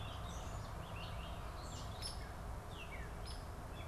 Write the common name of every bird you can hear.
Gray Catbird, Hairy Woodpecker